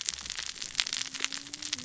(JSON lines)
{"label": "biophony, cascading saw", "recorder": "SoundTrap 600 or HydroMoth"}